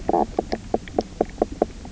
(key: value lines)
label: biophony, knock croak
recorder: SoundTrap 300